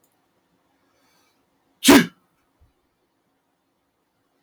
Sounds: Sneeze